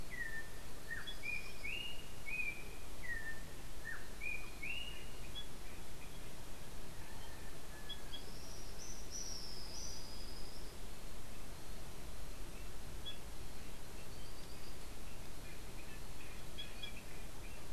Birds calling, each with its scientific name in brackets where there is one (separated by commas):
Tropical Kingbird (Tyrannus melancholicus)